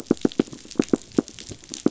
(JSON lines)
{"label": "biophony, knock", "recorder": "SoundTrap 500"}